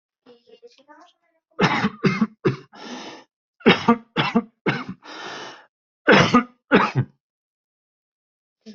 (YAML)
expert_labels:
- quality: ok
  cough_type: dry
  dyspnea: false
  wheezing: false
  stridor: false
  choking: false
  congestion: false
  nothing: true
  diagnosis: upper respiratory tract infection
  severity: mild
age: 49
gender: male
respiratory_condition: false
fever_muscle_pain: false
status: healthy